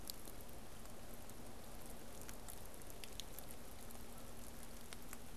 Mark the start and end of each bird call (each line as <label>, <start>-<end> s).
Canada Goose (Branta canadensis), 4.0-4.4 s